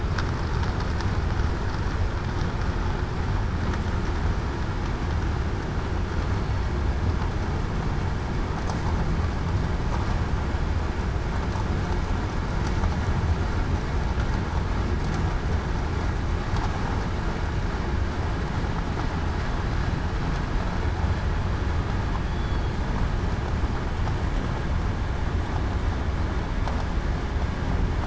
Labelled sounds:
22.2	22.6	killer whale, southern resident, 3.3 to 3.5 kHz

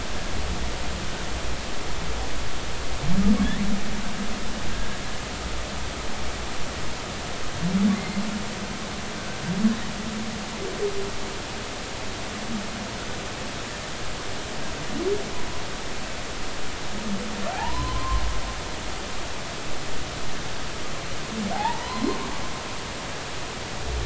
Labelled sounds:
4.7	5.0	humpback whale, 1.6 to 1.7 kHz
7.9	8.2	humpback whale, 2.0 to 2.2 kHz
17.5	18.2	humpback whale, 0.80 to 1.1 kHz
21.5	22.2	humpback whale, 0.80 to 4.3 kHz

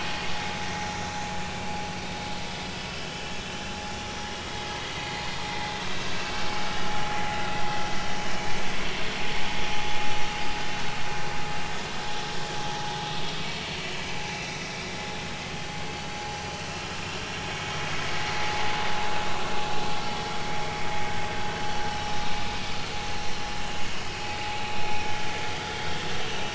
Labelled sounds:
2.9	3.3	vessel noise, 2.9 to 3.1 kHz
5.8	6.7	vessel noise, 2.6 to 5.4 kHz
14.3	14.5	vessel noise, 2.2 to 2.7 kHz
26.3	26.5	vessel noise, 2.6 to 2.8 kHz

